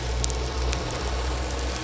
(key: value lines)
label: biophony
recorder: SoundTrap 300